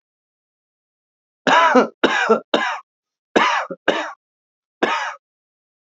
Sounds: Cough